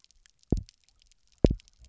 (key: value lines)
label: biophony, double pulse
recorder: SoundTrap 300